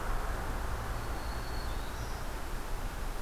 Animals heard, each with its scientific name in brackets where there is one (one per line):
Black-throated Green Warbler (Setophaga virens)